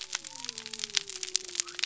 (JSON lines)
{"label": "biophony", "recorder": "SoundTrap 300"}